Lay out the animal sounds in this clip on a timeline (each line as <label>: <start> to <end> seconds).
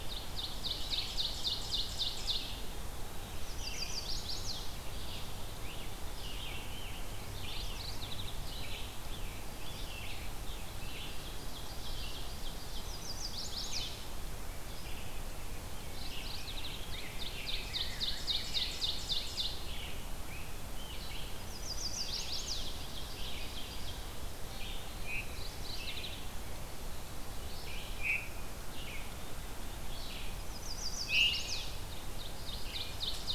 Ovenbird (Seiurus aurocapilla): 0.0 to 2.7 seconds
Red-eyed Vireo (Vireo olivaceus): 0.0 to 33.3 seconds
Chestnut-sided Warbler (Setophaga pensylvanica): 3.4 to 4.6 seconds
Scarlet Tanager (Piranga olivacea): 5.0 to 8.0 seconds
Mourning Warbler (Geothlypis philadelphia): 7.3 to 8.9 seconds
Scarlet Tanager (Piranga olivacea): 8.5 to 10.8 seconds
Ovenbird (Seiurus aurocapilla): 10.7 to 12.9 seconds
Chestnut-sided Warbler (Setophaga pensylvanica): 12.7 to 14.0 seconds
Mourning Warbler (Geothlypis philadelphia): 15.9 to 17.1 seconds
Ovenbird (Seiurus aurocapilla): 16.8 to 19.6 seconds
Rose-breasted Grosbeak (Pheucticus ludovicianus): 16.9 to 19.0 seconds
Scarlet Tanager (Piranga olivacea): 19.1 to 21.5 seconds
Chestnut-sided Warbler (Setophaga pensylvanica): 21.4 to 22.9 seconds
Scarlet Tanager (Piranga olivacea): 21.8 to 23.9 seconds
Ovenbird (Seiurus aurocapilla): 22.3 to 24.4 seconds
Veery (Catharus fuscescens): 25.0 to 33.3 seconds
Mourning Warbler (Geothlypis philadelphia): 25.1 to 26.5 seconds
Chestnut-sided Warbler (Setophaga pensylvanica): 30.2 to 31.8 seconds
Ovenbird (Seiurus aurocapilla): 32.0 to 33.3 seconds